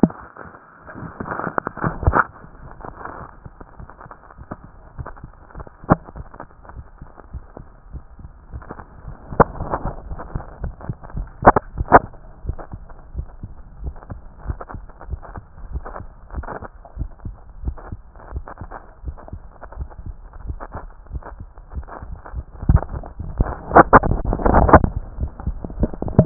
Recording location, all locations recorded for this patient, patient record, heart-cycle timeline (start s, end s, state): tricuspid valve (TV)
pulmonary valve (PV)+tricuspid valve (TV)+mitral valve (MV)
#Age: Child
#Sex: Male
#Height: 145.0 cm
#Weight: 28.3 kg
#Pregnancy status: False
#Murmur: Present
#Murmur locations: mitral valve (MV)+pulmonary valve (PV)+tricuspid valve (TV)
#Most audible location: tricuspid valve (TV)
#Systolic murmur timing: Holosystolic
#Systolic murmur shape: Plateau
#Systolic murmur grading: I/VI
#Systolic murmur pitch: Low
#Systolic murmur quality: Harsh
#Diastolic murmur timing: nan
#Diastolic murmur shape: nan
#Diastolic murmur grading: nan
#Diastolic murmur pitch: nan
#Diastolic murmur quality: nan
#Outcome: Abnormal
#Campaign: 2014 screening campaign
0.00	12.22	unannotated
12.22	12.44	diastole
12.44	12.56	S1
12.56	12.72	systole
12.72	12.82	S2
12.82	13.16	diastole
13.16	13.26	S1
13.26	13.42	systole
13.42	13.52	S2
13.52	13.82	diastole
13.82	13.94	S1
13.94	14.10	systole
14.10	14.20	S2
14.20	14.46	diastole
14.46	14.58	S1
14.58	14.74	systole
14.74	14.84	S2
14.84	15.08	diastole
15.08	15.20	S1
15.20	15.34	systole
15.34	15.44	S2
15.44	15.72	diastole
15.72	15.84	S1
15.84	15.98	systole
15.98	16.08	S2
16.08	16.34	diastole
16.34	16.46	S1
16.46	16.60	systole
16.60	16.70	S2
16.70	16.98	diastole
16.98	17.10	S1
17.10	17.24	systole
17.24	17.34	S2
17.34	17.64	diastole
17.64	17.76	S1
17.76	17.90	systole
17.90	18.00	S2
18.00	18.32	diastole
18.32	18.44	S1
18.44	18.60	systole
18.60	18.72	S2
18.72	19.04	diastole
19.04	19.16	S1
19.16	19.32	systole
19.32	19.42	S2
19.42	19.78	diastole
19.78	19.88	S1
19.88	20.06	systole
20.06	20.16	S2
20.16	20.46	diastole
20.46	20.58	S1
20.58	20.76	systole
20.76	20.86	S2
20.86	21.12	diastole
21.12	21.22	S1
21.22	21.38	systole
21.38	21.50	S2
21.50	21.74	diastole
21.74	21.86	S1
21.86	22.06	systole
22.06	22.16	S2
22.16	22.36	diastole
22.36	26.26	unannotated